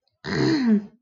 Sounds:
Throat clearing